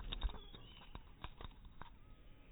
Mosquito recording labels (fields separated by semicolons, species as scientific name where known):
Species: mosquito; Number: one; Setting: cup